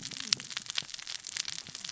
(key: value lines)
label: biophony, cascading saw
recorder: SoundTrap 600 or HydroMoth